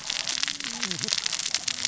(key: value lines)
label: biophony, cascading saw
recorder: SoundTrap 600 or HydroMoth